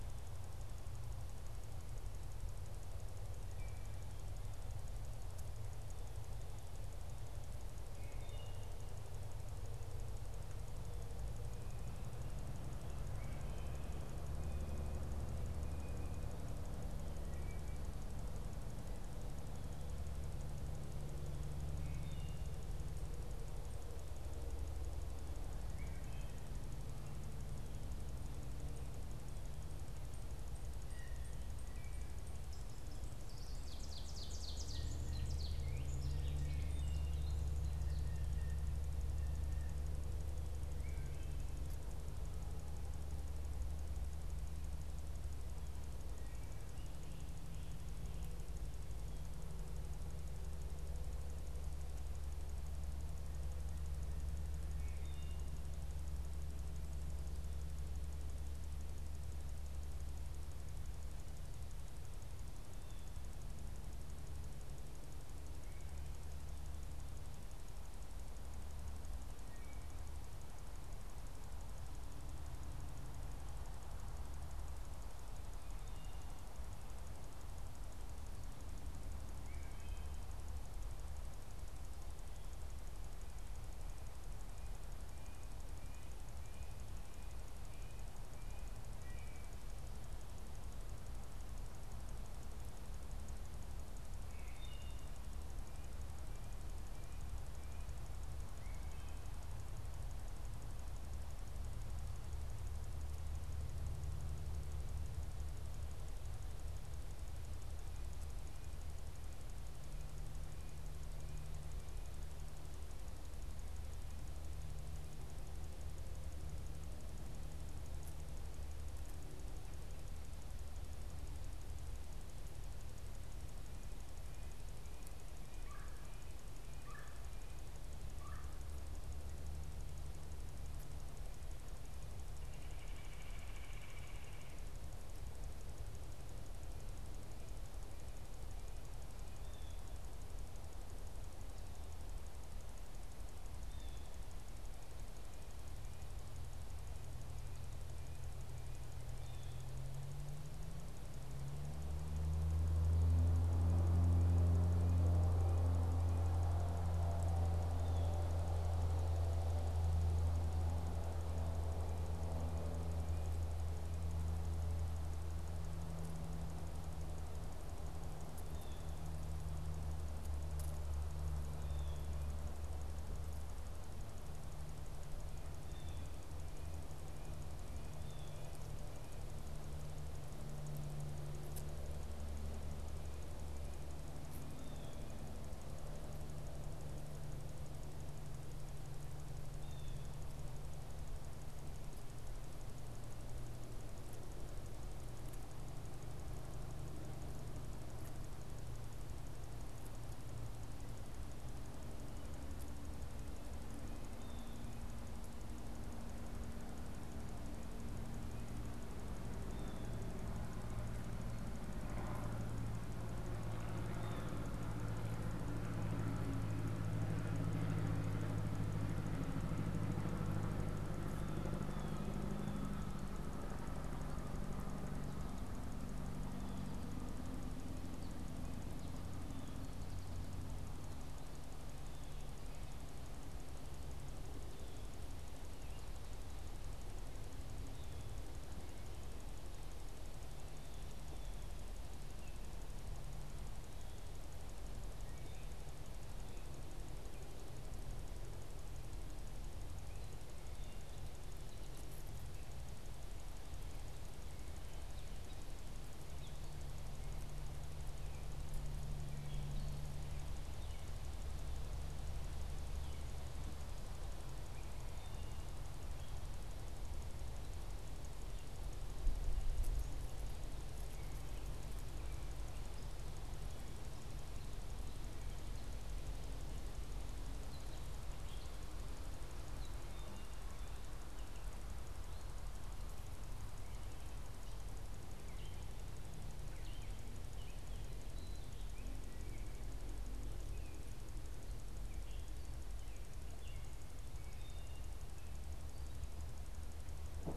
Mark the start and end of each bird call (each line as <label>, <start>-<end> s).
Wood Thrush (Hylocichla mustelina), 7.8-8.8 s
Wood Thrush (Hylocichla mustelina), 12.9-13.9 s
Wood Thrush (Hylocichla mustelina), 21.7-22.6 s
Wood Thrush (Hylocichla mustelina), 25.6-26.6 s
Ovenbird (Seiurus aurocapilla), 29.2-38.7 s
Blue Jay (Cyanocitta cristata), 30.7-31.3 s
Wood Thrush (Hylocichla mustelina), 31.4-32.1 s
Blue Jay (Cyanocitta cristata), 37.8-39.9 s
Wood Thrush (Hylocichla mustelina), 40.6-41.4 s
Wood Thrush (Hylocichla mustelina), 54.6-55.6 s
Wood Thrush (Hylocichla mustelina), 69.4-70.2 s
Wood Thrush (Hylocichla mustelina), 75.6-76.3 s
Wood Thrush (Hylocichla mustelina), 79.3-80.2 s
Wood Thrush (Hylocichla mustelina), 88.8-89.6 s
Wood Thrush (Hylocichla mustelina), 94.0-95.2 s
Wood Thrush (Hylocichla mustelina), 98.4-99.5 s
Red-breasted Nuthatch (Sitta canadensis), 124.0-126.5 s
Red-bellied Woodpecker (Melanerpes carolinus), 125.5-128.7 s
Red-bellied Woodpecker (Melanerpes carolinus), 132.2-134.8 s
Blue Jay (Cyanocitta cristata), 139.3-139.9 s
Blue Jay (Cyanocitta cristata), 143.5-144.2 s
Blue Jay (Cyanocitta cristata), 149.1-149.7 s
Blue Jay (Cyanocitta cristata), 157.7-158.2 s
Blue Jay (Cyanocitta cristata), 168.3-169.1 s
Blue Jay (Cyanocitta cristata), 171.5-172.2 s
Blue Jay (Cyanocitta cristata), 175.5-176.1 s
Blue Jay (Cyanocitta cristata), 177.9-178.6 s
Blue Jay (Cyanocitta cristata), 184.5-185.1 s
Blue Jay (Cyanocitta cristata), 189.5-190.1 s
Blue Jay (Cyanocitta cristata), 204.1-204.7 s
Blue Jay (Cyanocitta cristata), 209.4-210.0 s
Blue Jay (Cyanocitta cristata), 213.9-214.4 s
Blue Jay (Cyanocitta cristata), 221.3-222.8 s
Gray Catbird (Dumetella carolinensis), 236.7-295.5 s
Wood Thrush (Hylocichla mustelina), 244.9-245.6 s
Wood Thrush (Hylocichla mustelina), 294.1-295.0 s